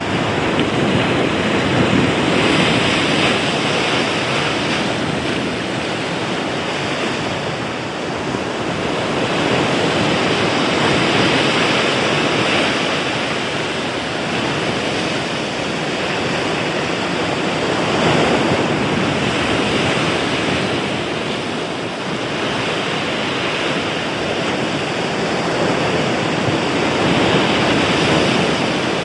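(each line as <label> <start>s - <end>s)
Waves crash rhythmically and relaxing. 0.0s - 29.0s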